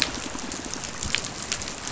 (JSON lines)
{"label": "biophony, pulse", "recorder": "SoundTrap 500"}